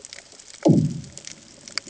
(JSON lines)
{"label": "anthrophony, bomb", "recorder": "HydroMoth"}